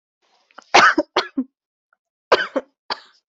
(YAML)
expert_labels:
- quality: ok
  cough_type: dry
  dyspnea: false
  wheezing: false
  stridor: false
  choking: false
  congestion: false
  nothing: true
  diagnosis: COVID-19
  severity: mild
age: 23
gender: female
respiratory_condition: false
fever_muscle_pain: false
status: COVID-19